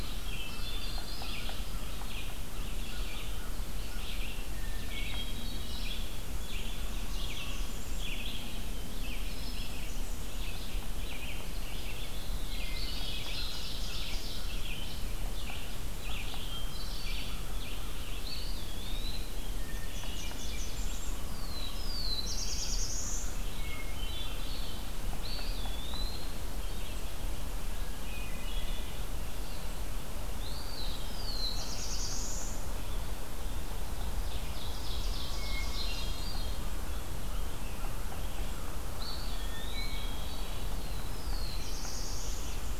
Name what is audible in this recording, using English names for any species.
Red-eyed Vireo, Hermit Thrush, Blackburnian Warbler, Ovenbird, Eastern Wood-Pewee, Black-throated Blue Warbler